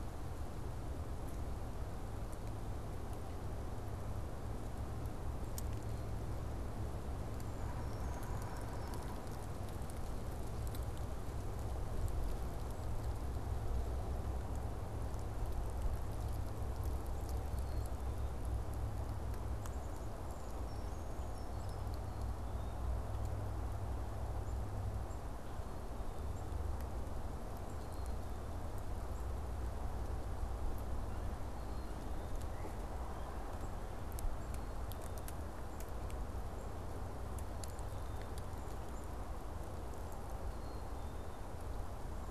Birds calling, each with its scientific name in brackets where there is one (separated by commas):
Black-capped Chickadee (Poecile atricapillus), Brown Creeper (Certhia americana)